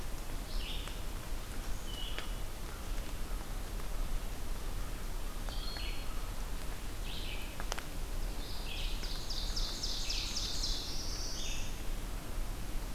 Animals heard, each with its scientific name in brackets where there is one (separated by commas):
Red-eyed Vireo (Vireo olivaceus), Black-throated Blue Warbler (Setophaga caerulescens), Ovenbird (Seiurus aurocapilla)